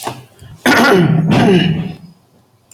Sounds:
Throat clearing